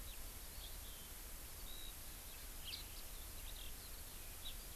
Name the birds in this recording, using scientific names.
Alauda arvensis